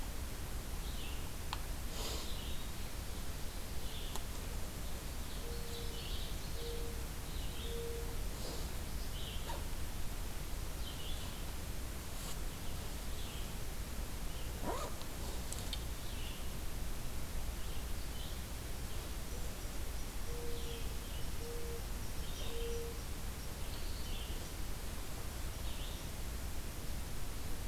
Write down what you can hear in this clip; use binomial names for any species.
Vireo olivaceus, Seiurus aurocapilla, Zenaida macroura